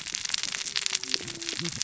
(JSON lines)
{"label": "biophony, cascading saw", "recorder": "SoundTrap 600 or HydroMoth"}